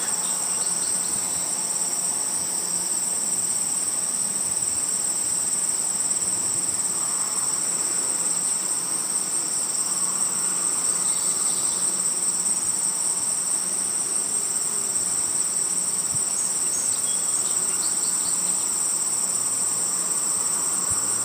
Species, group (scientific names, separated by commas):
Allonemobius allardi, Orthoptera